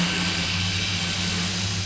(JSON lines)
{"label": "anthrophony, boat engine", "recorder": "SoundTrap 500"}